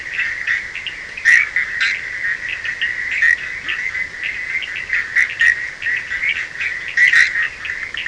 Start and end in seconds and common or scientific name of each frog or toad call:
0.0	8.0	Bischoff's tree frog
0.0	8.0	Cochran's lime tree frog
3.6	3.8	Leptodactylus latrans